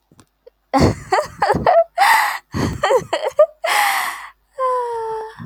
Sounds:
Laughter